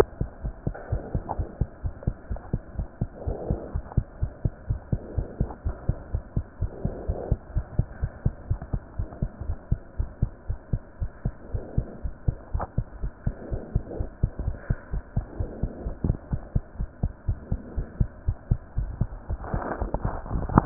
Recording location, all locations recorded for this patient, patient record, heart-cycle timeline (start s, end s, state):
aortic valve (AV)
aortic valve (AV)+pulmonary valve (PV)+tricuspid valve (TV)+mitral valve (MV)
#Age: Child
#Sex: Female
#Height: 112.0 cm
#Weight: 18.6 kg
#Pregnancy status: False
#Murmur: Absent
#Murmur locations: nan
#Most audible location: nan
#Systolic murmur timing: nan
#Systolic murmur shape: nan
#Systolic murmur grading: nan
#Systolic murmur pitch: nan
#Systolic murmur quality: nan
#Diastolic murmur timing: nan
#Diastolic murmur shape: nan
#Diastolic murmur grading: nan
#Diastolic murmur pitch: nan
#Diastolic murmur quality: nan
#Outcome: Normal
#Campaign: 2015 screening campaign
0.00	0.27	unannotated
0.27	0.44	diastole
0.44	0.54	S1
0.54	0.66	systole
0.66	0.76	S2
0.76	0.90	diastole
0.90	1.02	S1
1.02	1.12	systole
1.12	1.22	S2
1.22	1.36	diastole
1.36	1.50	S1
1.50	1.58	systole
1.58	1.68	S2
1.68	1.84	diastole
1.84	1.94	S1
1.94	2.04	systole
2.04	2.14	S2
2.14	2.30	diastole
2.30	2.40	S1
2.40	2.50	systole
2.50	2.60	S2
2.60	2.76	diastole
2.76	2.88	S1
2.88	2.98	systole
2.98	3.08	S2
3.08	3.24	diastole
3.24	3.38	S1
3.38	3.48	systole
3.48	3.58	S2
3.58	3.72	diastole
3.72	3.82	S1
3.82	3.90	systole
3.90	4.04	S2
4.04	4.20	diastole
4.20	4.30	S1
4.30	4.42	systole
4.42	4.52	S2
4.52	4.68	diastole
4.68	4.80	S1
4.80	4.88	systole
4.88	5.02	S2
5.02	5.16	diastole
5.16	5.28	S1
5.28	5.38	systole
5.38	5.52	S2
5.52	5.64	diastole
5.64	5.76	S1
5.76	5.86	systole
5.86	5.96	S2
5.96	6.12	diastole
6.12	6.22	S1
6.22	6.34	systole
6.34	6.44	S2
6.44	6.60	diastole
6.60	6.72	S1
6.72	6.83	systole
6.83	6.92	S2
6.92	7.06	diastole
7.06	7.20	S1
7.20	7.30	systole
7.30	7.40	S2
7.40	7.54	diastole
7.54	7.64	S1
7.64	7.76	systole
7.76	7.86	S2
7.86	8.00	diastole
8.00	8.10	S1
8.10	8.22	systole
8.22	8.34	S2
8.34	8.48	diastole
8.48	8.62	S1
8.62	8.70	systole
8.70	8.80	S2
8.80	8.96	diastole
8.96	9.06	S1
9.06	9.18	systole
9.18	9.30	S2
9.30	9.42	diastole
9.42	9.56	S1
9.56	9.68	systole
9.68	9.80	S2
9.80	9.98	diastole
9.98	10.10	S1
10.10	10.20	systole
10.20	10.30	S2
10.30	10.48	diastole
10.48	10.58	S1
10.58	10.72	systole
10.72	10.82	S2
10.82	11.00	diastole
11.00	11.10	S1
11.10	11.23	systole
11.23	11.31	S2
11.31	11.52	diastole
11.52	11.62	S1
11.62	11.76	systole
11.76	11.86	S2
11.86	12.02	diastole
12.02	12.12	S1
12.12	12.22	systole
12.22	12.36	S2
12.36	12.52	diastole
12.52	12.66	S1
12.66	12.76	systole
12.76	12.86	S2
12.86	13.01	diastole
13.01	13.11	S1
13.11	13.24	systole
13.24	13.36	S2
13.36	13.49	diastole
13.49	13.62	S1
13.62	13.73	systole
13.73	13.83	S2
13.83	13.98	diastole
13.98	14.08	S1
14.08	14.20	systole
14.20	14.30	S2
14.30	14.44	diastole
14.44	14.56	S1
14.56	14.66	systole
14.66	14.78	S2
14.78	14.92	diastole
14.92	15.02	S1
15.02	15.15	systole
15.15	15.26	S2
15.26	15.38	diastole
15.38	15.50	S1
15.50	15.61	systole
15.61	15.72	S2
15.72	15.84	diastole
15.84	15.96	S1
15.96	16.04	systole
16.04	16.18	S2
16.18	16.31	diastole
16.31	16.41	S1
16.41	16.50	systole
16.50	16.62	S2
16.62	16.78	diastole
16.78	16.88	S1
16.88	17.01	systole
17.01	17.14	S2
17.14	17.26	diastole
17.26	17.40	S1
17.40	17.50	systole
17.50	17.60	S2
17.60	17.76	diastole
17.76	17.86	S1
17.86	17.98	systole
17.98	18.10	S2
18.10	18.26	diastole
18.26	18.40	S1
18.40	18.49	systole
18.49	18.60	S2
18.60	18.76	diastole
18.76	20.66	unannotated